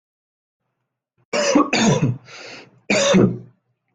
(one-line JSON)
{"expert_labels": [{"quality": "ok", "cough_type": "dry", "dyspnea": false, "wheezing": false, "stridor": false, "choking": false, "congestion": false, "nothing": true, "diagnosis": "lower respiratory tract infection", "severity": "mild"}], "age": 27, "gender": "male", "respiratory_condition": false, "fever_muscle_pain": false, "status": "healthy"}